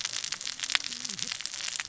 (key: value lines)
label: biophony, cascading saw
recorder: SoundTrap 600 or HydroMoth